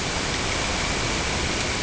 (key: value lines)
label: ambient
recorder: HydroMoth